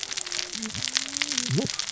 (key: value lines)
label: biophony, cascading saw
recorder: SoundTrap 600 or HydroMoth